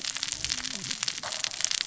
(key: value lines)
label: biophony, cascading saw
recorder: SoundTrap 600 or HydroMoth